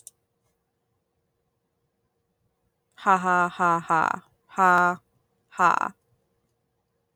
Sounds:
Laughter